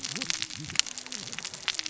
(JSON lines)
{"label": "biophony, cascading saw", "recorder": "SoundTrap 600 or HydroMoth"}